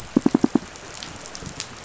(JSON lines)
{"label": "biophony, pulse", "recorder": "SoundTrap 500"}